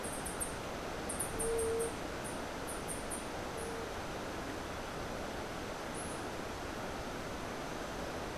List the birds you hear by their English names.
unidentified bird, White-tipped Dove